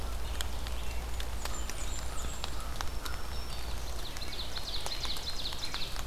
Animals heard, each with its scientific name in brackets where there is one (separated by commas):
Black-throated Green Warbler (Setophaga virens), Ovenbird (Seiurus aurocapilla), Blackburnian Warbler (Setophaga fusca), American Crow (Corvus brachyrhynchos), American Robin (Turdus migratorius)